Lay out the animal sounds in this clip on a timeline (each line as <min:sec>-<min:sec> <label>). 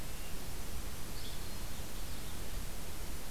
0:00.3-0:02.9 Winter Wren (Troglodytes hiemalis)
0:01.1-0:01.4 Yellow-bellied Flycatcher (Empidonax flaviventris)